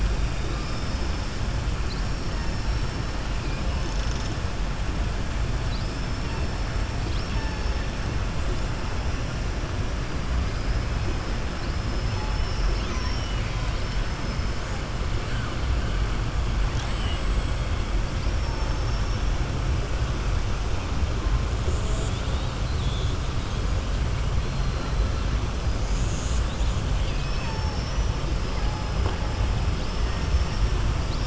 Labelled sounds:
0.4	1.2	killer whale, southern resident, 4.6 to 6.1 kHz
18.1	19.2	killer whale, southern resident, 4.6 to 6.4 kHz

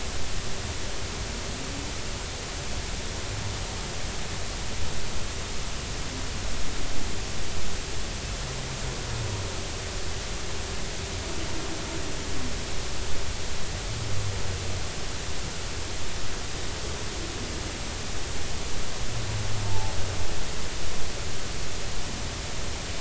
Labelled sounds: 19.6	19.9	humpback whale, 0.80 to 0.96 kHz

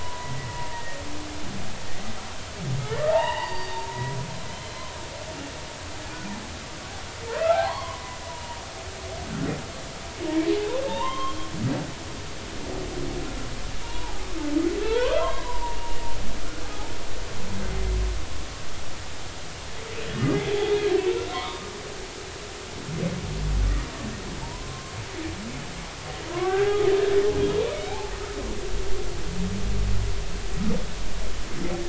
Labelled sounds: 0.7	1.0	humpback whale, 1.8 to 2.0 kHz
3.1	4.8	humpback whale, 0.80 to 4.7 kHz
7.3	8.6	humpback whale, 0.80 to 2.1 kHz
10.9	11.5	humpback whale, 0.83 to 3.3 kHz
13.8	15.8	humpback whale, 0.80 to 2.7 kHz
16.6	16.9	humpback whale, 0.80 to 0.93 kHz
20.4	20.7	humpback whale, 3.2 to 3.6 kHz
21.3	21.6	humpback whale, 0.90 to 2.3 kHz
24.4	24.9	humpback whale, 0.86 to 1.1 kHz
26.3	26.8	humpback whale, 0.80 to 3.4 kHz
27.9	28.1	humpback whale, 0.80 to 0.93 kHz

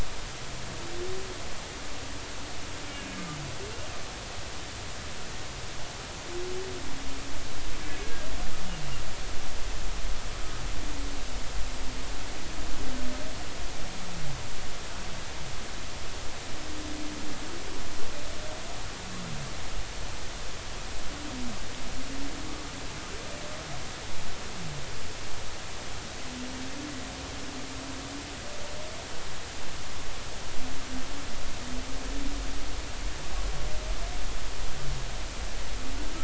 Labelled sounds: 8.0	8.3	humpback whale, 1.6 to 1.7 kHz

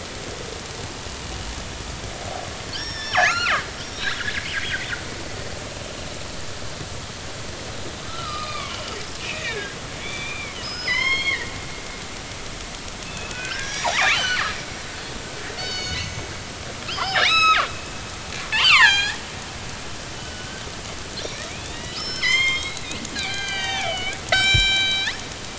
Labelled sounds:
2.7	4.3	killer whale, northern resident, G clan, 1.1 to 5.7 kHz
8.0	11.5	killer whale, northern resident, G clan, 0.93 to 6.5 kHz
13.0	14.5	killer whale, northern resident, G clan, 1.3 to 7.7 kHz
15.6	16.3	killer whale, northern resident, G clan, 2.1 to 6.8 kHz
16.9	17.7	killer whale, northern resident, G clan, 1.0 to 6.6 kHz
18.5	19.2	killer whale, northern resident, G clan, 0.80 to 7.5 kHz
20.1	20.6	killer whale, northern resident, G clan, 1.4 to 3.1 kHz
21.5	25.1	killer whale, northern resident, G clan, 0.80 to 7.9 kHz

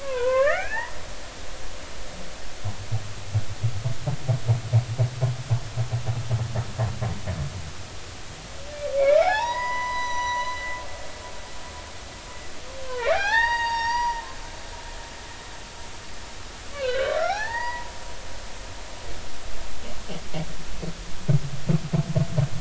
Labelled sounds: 0.0	0.9	humpback whale, 0.93 to 3.1 kHz
9.0	10.8	humpback whale, 0.80 to 6.0 kHz
12.8	14.2	humpback whale, 0.80 to 6.6 kHz
16.7	17.9	humpback whale, 0.80 to 6.0 kHz

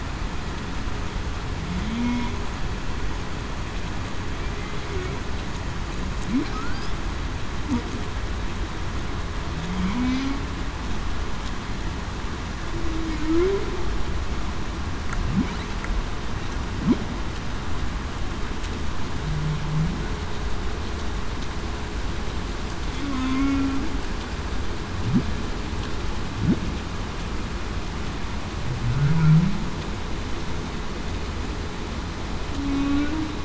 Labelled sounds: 1.8	2.3	humpback whale, 0.19 to 0.28 kHz
6.5	6.8	humpback whale, 1.2 to 1.6 kHz
9.6	10.4	humpback whale, 0.19 to 0.30 kHz
12.7	13.7	humpback whale, 0.28 to 0.47 kHz
22.9	23.7	humpback whale, 0.21 to 1.1 kHz
29.1	29.6	humpback whale, 0.19 to 0.23 kHz
32.5	33.1	humpback whale, 0.26 to 0.35 kHz

